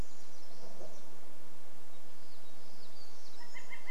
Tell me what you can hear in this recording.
warbler song, Northern Flicker call